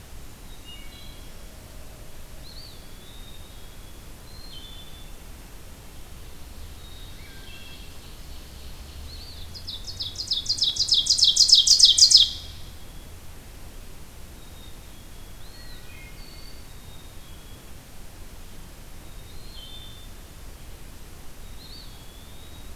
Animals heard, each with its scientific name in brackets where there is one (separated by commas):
Black-capped Chickadee (Poecile atricapillus), Wood Thrush (Hylocichla mustelina), Ovenbird (Seiurus aurocapilla), Eastern Wood-Pewee (Contopus virens)